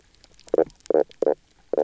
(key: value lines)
label: biophony, knock croak
recorder: SoundTrap 300